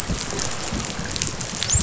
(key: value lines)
label: biophony, dolphin
recorder: SoundTrap 500